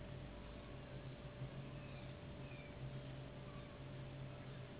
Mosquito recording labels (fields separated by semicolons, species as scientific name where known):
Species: Anopheles gambiae s.s.; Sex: female; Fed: unfed; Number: one; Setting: insect culture